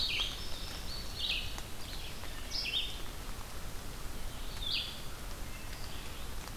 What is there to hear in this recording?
Indigo Bunting, Red-eyed Vireo, Wood Thrush